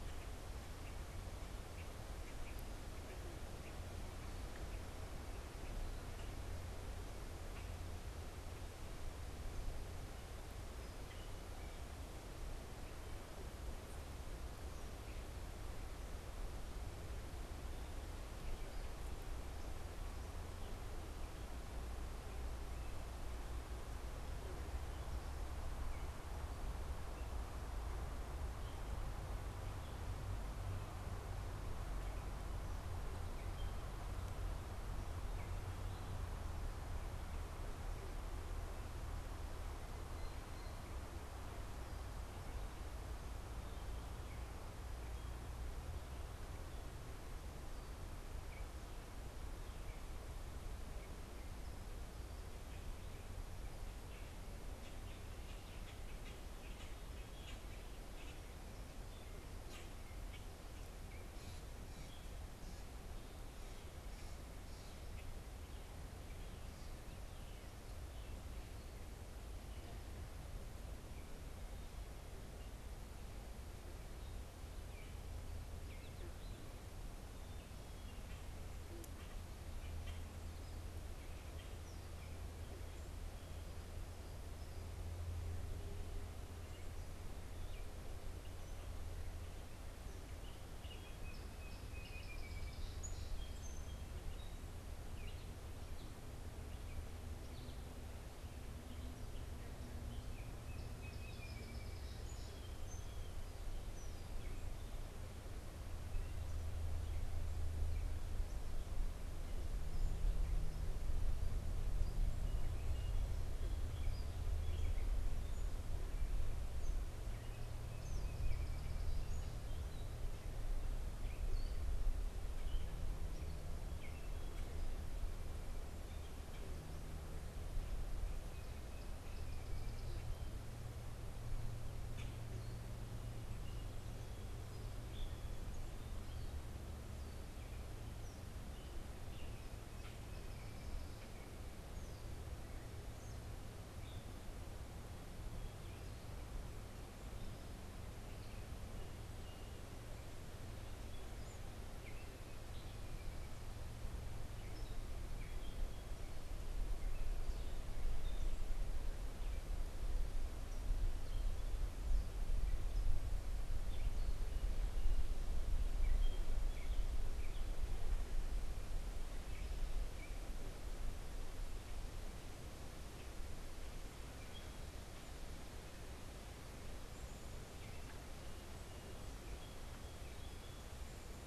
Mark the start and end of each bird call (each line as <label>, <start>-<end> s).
Common Grackle (Quiscalus quiscula), 0.0-8.0 s
Common Grackle (Quiscalus quiscula), 55.0-60.5 s
Common Grackle (Quiscalus quiscula), 77.9-81.7 s
Song Sparrow (Melospiza melodia), 90.1-94.7 s
Song Sparrow (Melospiza melodia), 100.0-103.5 s
Song Sparrow (Melospiza melodia), 117.2-119.9 s
Gray Catbird (Dumetella carolinensis), 138.8-181.5 s